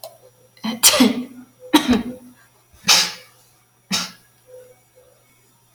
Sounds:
Sneeze